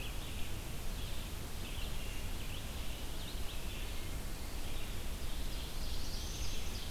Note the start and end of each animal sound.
[0.00, 6.91] Red-eyed Vireo (Vireo olivaceus)
[5.01, 6.91] Ovenbird (Seiurus aurocapilla)
[5.43, 6.73] Black-throated Blue Warbler (Setophaga caerulescens)

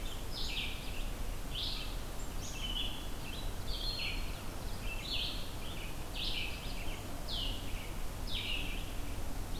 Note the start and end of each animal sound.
[0.00, 9.59] Red-eyed Vireo (Vireo olivaceus)
[2.16, 2.81] Black-capped Chickadee (Poecile atricapillus)

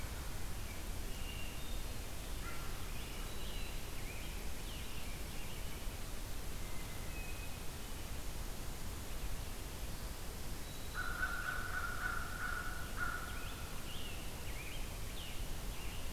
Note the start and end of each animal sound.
[0.87, 2.48] Hermit Thrush (Catharus guttatus)
[2.30, 5.74] Scarlet Tanager (Piranga olivacea)
[6.44, 7.73] Hermit Thrush (Catharus guttatus)
[10.48, 11.29] Black-throated Green Warbler (Setophaga virens)
[10.85, 13.75] American Crow (Corvus brachyrhynchos)
[12.89, 16.13] Scarlet Tanager (Piranga olivacea)

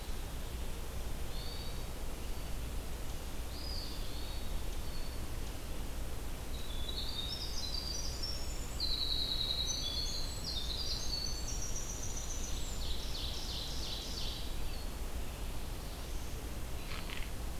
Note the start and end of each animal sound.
[1.23, 2.00] Hermit Thrush (Catharus guttatus)
[3.41, 4.12] Eastern Wood-Pewee (Contopus virens)
[3.85, 5.38] Hermit Thrush (Catharus guttatus)
[6.35, 13.07] Winter Wren (Troglodytes hiemalis)
[12.18, 14.85] Ovenbird (Seiurus aurocapilla)

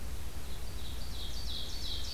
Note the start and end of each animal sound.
[0.00, 2.14] Ovenbird (Seiurus aurocapilla)

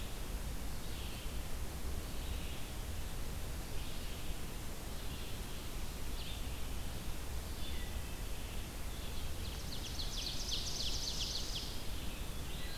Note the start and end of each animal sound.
[0.55, 12.77] Red-eyed Vireo (Vireo olivaceus)
[7.51, 8.19] Wood Thrush (Hylocichla mustelina)
[9.16, 11.87] Ovenbird (Seiurus aurocapilla)
[11.87, 12.77] Black-throated Blue Warbler (Setophaga caerulescens)

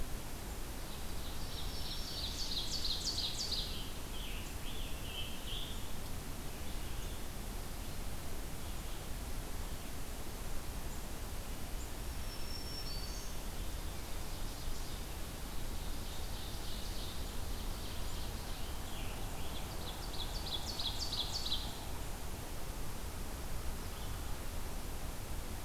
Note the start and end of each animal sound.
[0.49, 3.82] Ovenbird (Seiurus aurocapilla)
[1.17, 2.91] Black-throated Green Warbler (Setophaga virens)
[3.95, 5.86] Scarlet Tanager (Piranga olivacea)
[11.80, 13.47] Black-throated Green Warbler (Setophaga virens)
[13.52, 15.05] Ovenbird (Seiurus aurocapilla)
[15.44, 18.71] Ovenbird (Seiurus aurocapilla)
[19.45, 21.68] Ovenbird (Seiurus aurocapilla)

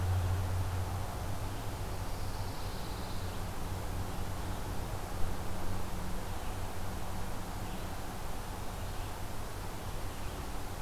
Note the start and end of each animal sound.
[0.00, 10.81] Red-eyed Vireo (Vireo olivaceus)
[1.83, 3.44] Pine Warbler (Setophaga pinus)

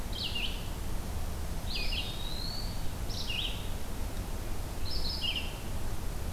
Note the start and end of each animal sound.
[0.00, 6.32] Red-eyed Vireo (Vireo olivaceus)
[1.52, 2.90] Eastern Wood-Pewee (Contopus virens)

